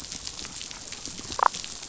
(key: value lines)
label: biophony, damselfish
recorder: SoundTrap 500